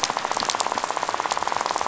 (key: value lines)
label: biophony, rattle
recorder: SoundTrap 500